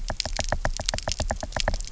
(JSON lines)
{"label": "biophony, knock", "recorder": "SoundTrap 300"}